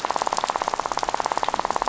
{"label": "biophony, rattle", "recorder": "SoundTrap 500"}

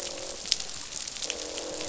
{"label": "biophony, croak", "recorder": "SoundTrap 500"}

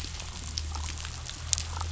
{"label": "anthrophony, boat engine", "recorder": "SoundTrap 500"}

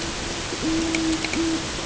{"label": "ambient", "recorder": "HydroMoth"}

